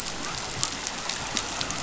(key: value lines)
label: biophony
recorder: SoundTrap 500